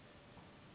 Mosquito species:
Anopheles gambiae s.s.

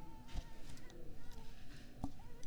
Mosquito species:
Mansonia uniformis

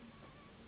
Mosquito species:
Anopheles gambiae s.s.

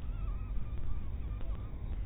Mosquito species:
mosquito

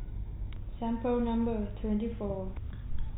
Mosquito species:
no mosquito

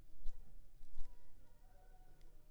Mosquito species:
Anopheles funestus s.s.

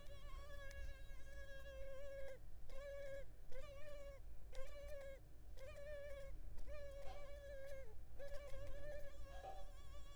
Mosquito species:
Culex pipiens complex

